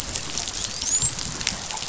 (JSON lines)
{"label": "biophony, dolphin", "recorder": "SoundTrap 500"}